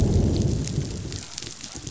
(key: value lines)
label: biophony, growl
recorder: SoundTrap 500